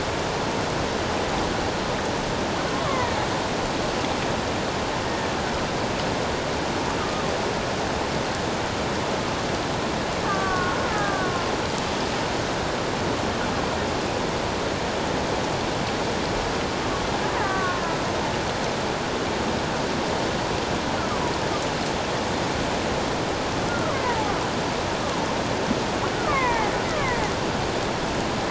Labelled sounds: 2.8	3.2	killer whale, Bigg's (transient), 0.91 to 2.3 kHz
7.0	7.2	killer whale, Bigg's (transient), 1.2 to 1.3 kHz
10.2	11.5	killer whale, Bigg's (transient), 1.0 to 1.8 kHz
17.4	17.9	killer whale, Bigg's (transient), 0.97 to 2.0 kHz
23.7	24.3	killer whale, Bigg's (transient), 0.78 to 1.5 kHz
26.1	27.2	killer whale, Bigg's (transient), 0.78 to 2.6 kHz

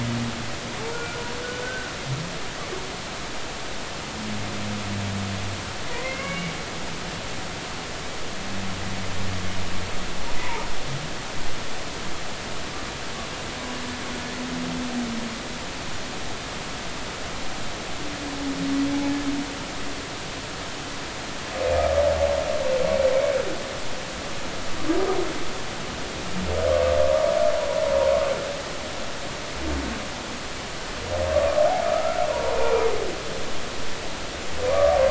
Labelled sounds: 0.9	1.2	humpback whale, 1.3 to 1.5 kHz
1.6	1.9	humpback whale, 1.4 to 1.6 kHz
5.9	6.5	humpback whale, 0.93 to 2.9 kHz
10.4	10.7	humpback whale, 0.83 to 1.0 kHz
21.8	22.0	humpback whale, 1.2 to 1.3 kHz
31.8	32.8	humpback whale, 0.86 to 2.5 kHz
34.7	35.0	humpback whale, 1.1 to 1.3 kHz

